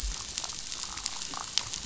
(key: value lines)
label: biophony
recorder: SoundTrap 500